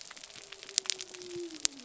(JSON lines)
{"label": "biophony", "recorder": "SoundTrap 300"}